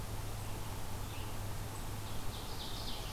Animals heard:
Ovenbird (Seiurus aurocapilla)

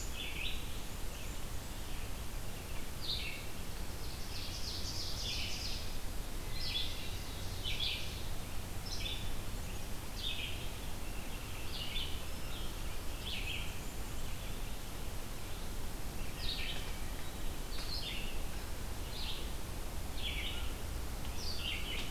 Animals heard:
Ovenbird (Seiurus aurocapilla), Blackburnian Warbler (Setophaga fusca), Hermit Thrush (Catharus guttatus), Red-eyed Vireo (Vireo olivaceus)

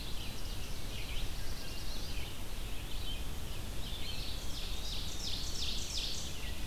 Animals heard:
Wood Thrush (Hylocichla mustelina), Eastern Wood-Pewee (Contopus virens), Black-throated Blue Warbler (Setophaga caerulescens), Red-eyed Vireo (Vireo olivaceus), Ovenbird (Seiurus aurocapilla)

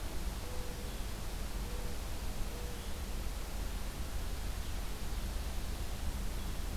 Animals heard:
Mourning Dove (Zenaida macroura)

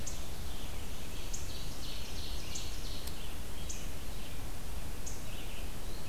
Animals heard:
Ovenbird (Seiurus aurocapilla), Red-eyed Vireo (Vireo olivaceus)

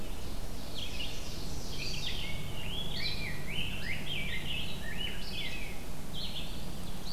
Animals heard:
Ovenbird (Seiurus aurocapilla), Rose-breasted Grosbeak (Pheucticus ludovicianus), Red-eyed Vireo (Vireo olivaceus)

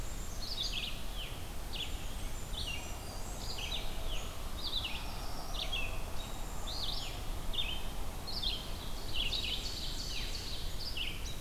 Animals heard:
Black-throated Blue Warbler (Setophaga caerulescens), Black-capped Chickadee (Poecile atricapillus), Blackburnian Warbler (Setophaga fusca), Red-eyed Vireo (Vireo olivaceus), Ovenbird (Seiurus aurocapilla), Brown Creeper (Certhia americana)

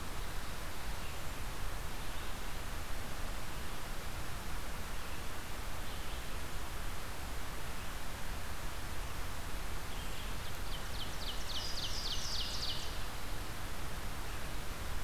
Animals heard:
Ovenbird (Seiurus aurocapilla), Louisiana Waterthrush (Parkesia motacilla), Red-eyed Vireo (Vireo olivaceus)

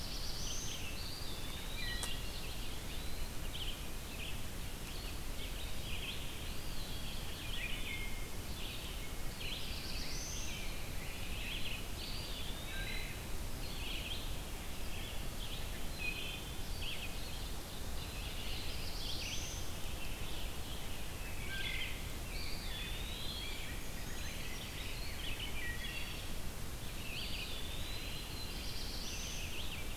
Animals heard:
Ovenbird (Seiurus aurocapilla), Brown Creeper (Certhia americana), Eastern Wood-Pewee (Contopus virens), Black-throated Blue Warbler (Setophaga caerulescens), Rose-breasted Grosbeak (Pheucticus ludovicianus), Wood Thrush (Hylocichla mustelina), Red-eyed Vireo (Vireo olivaceus)

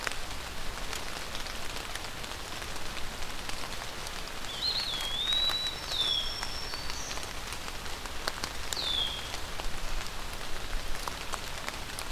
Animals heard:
Black-throated Green Warbler (Setophaga virens), Red-winged Blackbird (Agelaius phoeniceus), Eastern Wood-Pewee (Contopus virens), Yellow-bellied Sapsucker (Sphyrapicus varius)

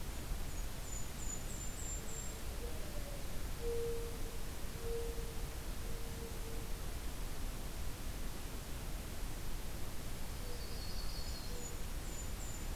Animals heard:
Mourning Dove (Zenaida macroura), Golden-crowned Kinglet (Regulus satrapa), Yellow-rumped Warbler (Setophaga coronata)

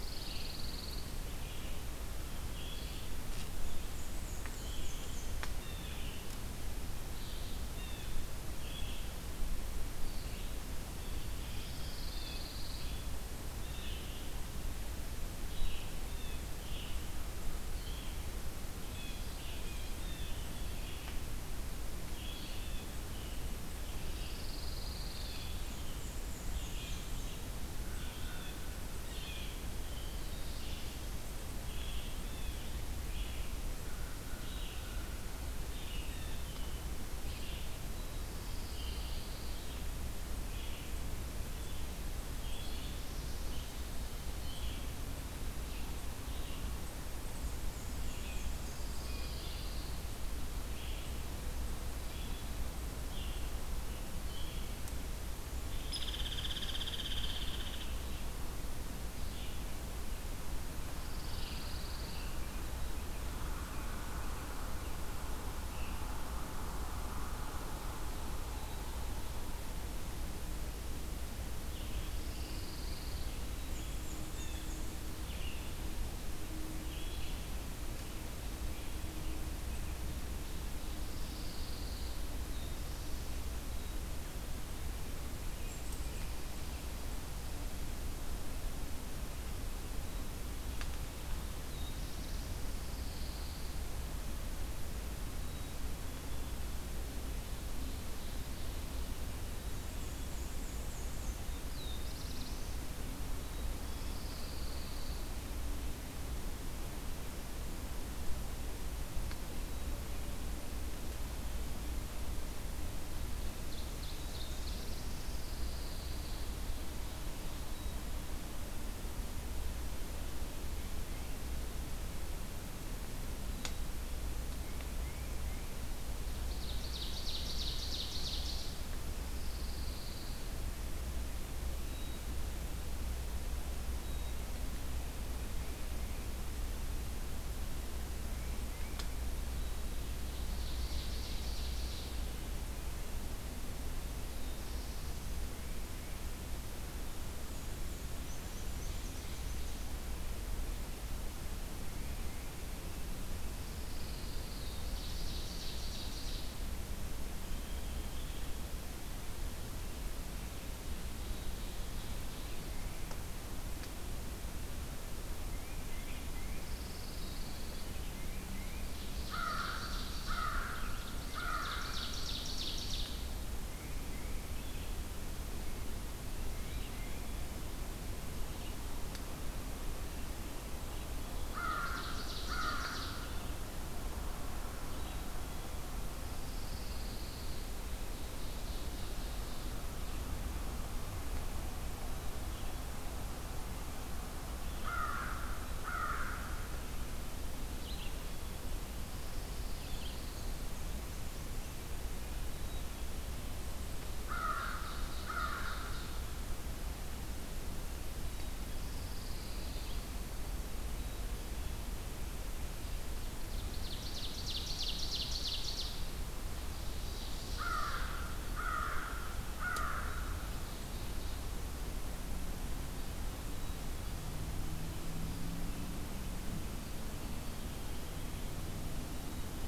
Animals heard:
Red-eyed Vireo (Vireo olivaceus), Blue Jay (Cyanocitta cristata), Hairy Woodpecker (Dryobates villosus), Black-throated Blue Warbler (Setophaga caerulescens), Ovenbird (Seiurus aurocapilla), Pine Warbler (Setophaga pinus), American Crow (Corvus brachyrhynchos), Veery (Catharus fuscescens), Tufted Titmouse (Baeolophus bicolor), Black-and-white Warbler (Mniotilta varia), Black-capped Chickadee (Poecile atricapillus)

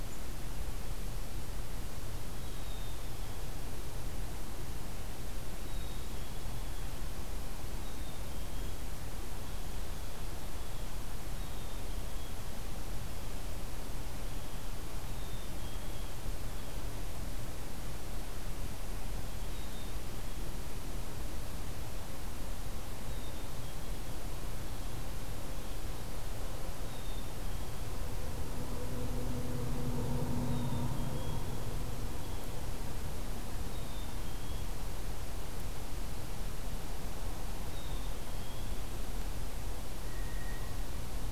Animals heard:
Black-capped Chickadee (Poecile atricapillus), Blue Jay (Cyanocitta cristata)

